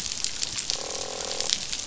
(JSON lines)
{"label": "biophony, croak", "recorder": "SoundTrap 500"}